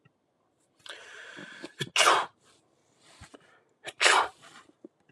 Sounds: Sneeze